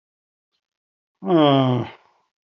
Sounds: Sigh